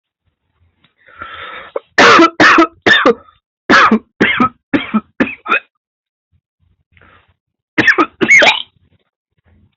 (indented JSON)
{
  "expert_labels": [
    {
      "quality": "good",
      "cough_type": "dry",
      "dyspnea": false,
      "wheezing": false,
      "stridor": false,
      "choking": false,
      "congestion": true,
      "nothing": false,
      "diagnosis": "upper respiratory tract infection",
      "severity": "severe"
    }
  ],
  "age": 24,
  "gender": "male",
  "respiratory_condition": true,
  "fever_muscle_pain": false,
  "status": "COVID-19"
}